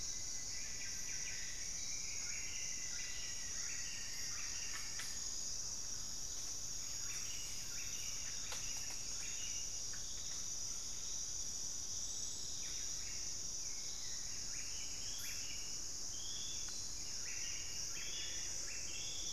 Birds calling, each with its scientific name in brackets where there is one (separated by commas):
Rufous-fronted Antthrush (Formicarius rufifrons), Buff-breasted Wren (Cantorchilus leucotis), Thrush-like Wren (Campylorhynchus turdinus), Hauxwell's Thrush (Turdus hauxwelli)